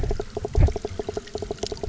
{"label": "biophony, knock croak", "recorder": "SoundTrap 300"}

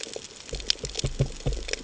{"label": "ambient", "recorder": "HydroMoth"}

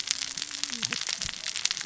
{"label": "biophony, cascading saw", "recorder": "SoundTrap 600 or HydroMoth"}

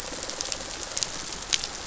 {"label": "biophony, rattle response", "recorder": "SoundTrap 500"}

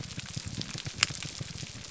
{"label": "biophony, grouper groan", "recorder": "SoundTrap 300"}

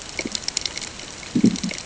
{"label": "ambient", "recorder": "HydroMoth"}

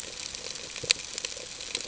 {"label": "ambient", "recorder": "HydroMoth"}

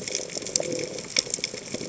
{"label": "biophony", "recorder": "HydroMoth"}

